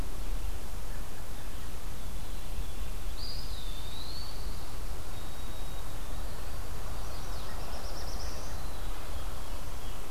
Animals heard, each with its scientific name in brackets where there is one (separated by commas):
Eastern Wood-Pewee (Contopus virens), Veery (Catharus fuscescens), Black-throated Blue Warbler (Setophaga caerulescens), White-throated Sparrow (Zonotrichia albicollis)